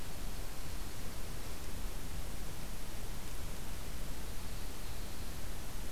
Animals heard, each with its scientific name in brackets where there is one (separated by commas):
Dark-eyed Junco (Junco hyemalis)